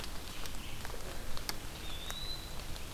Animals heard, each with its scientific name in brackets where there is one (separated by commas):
Eastern Wood-Pewee (Contopus virens), Red-eyed Vireo (Vireo olivaceus)